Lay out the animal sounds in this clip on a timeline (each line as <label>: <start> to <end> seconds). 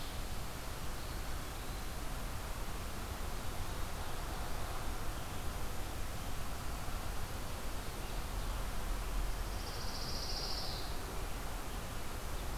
Eastern Wood-Pewee (Contopus virens): 0.8 to 2.1 seconds
Pine Warbler (Setophaga pinus): 9.5 to 10.9 seconds